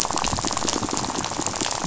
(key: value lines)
label: biophony, rattle
recorder: SoundTrap 500